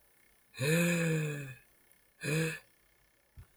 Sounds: Sigh